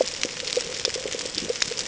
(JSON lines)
{"label": "ambient", "recorder": "HydroMoth"}